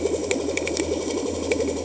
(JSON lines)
{"label": "anthrophony, boat engine", "recorder": "HydroMoth"}